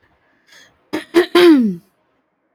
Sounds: Throat clearing